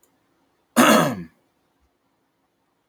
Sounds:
Throat clearing